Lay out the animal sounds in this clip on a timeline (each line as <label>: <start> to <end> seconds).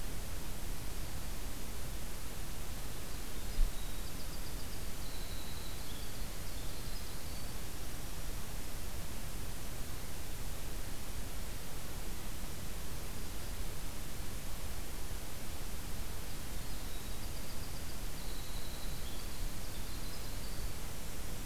Winter Wren (Troglodytes hiemalis): 3.2 to 8.3 seconds
Winter Wren (Troglodytes hiemalis): 16.6 to 20.8 seconds